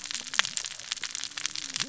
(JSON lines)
{"label": "biophony, cascading saw", "recorder": "SoundTrap 600 or HydroMoth"}